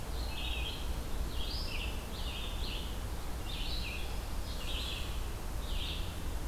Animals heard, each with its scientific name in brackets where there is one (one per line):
Red-eyed Vireo (Vireo olivaceus)